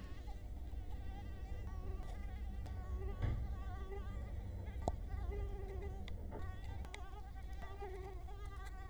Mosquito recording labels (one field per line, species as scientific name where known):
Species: Culex quinquefasciatus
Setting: cup